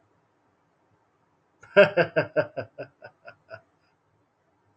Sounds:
Laughter